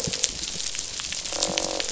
{"label": "biophony, croak", "recorder": "SoundTrap 500"}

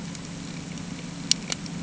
{"label": "anthrophony, boat engine", "recorder": "HydroMoth"}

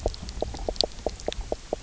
{"label": "biophony, knock croak", "recorder": "SoundTrap 300"}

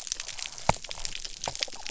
{"label": "biophony", "recorder": "SoundTrap 300"}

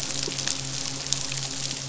{"label": "biophony, midshipman", "recorder": "SoundTrap 500"}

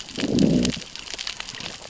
{"label": "biophony, growl", "recorder": "SoundTrap 600 or HydroMoth"}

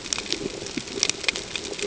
{"label": "ambient", "recorder": "HydroMoth"}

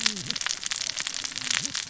{"label": "biophony, cascading saw", "recorder": "SoundTrap 600 or HydroMoth"}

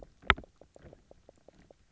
{"label": "biophony, knock croak", "recorder": "SoundTrap 300"}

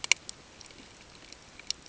{"label": "ambient", "recorder": "HydroMoth"}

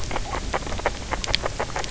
{"label": "biophony, grazing", "recorder": "SoundTrap 300"}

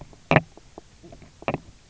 {"label": "biophony, knock croak", "recorder": "SoundTrap 300"}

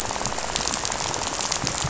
{"label": "biophony, rattle", "recorder": "SoundTrap 500"}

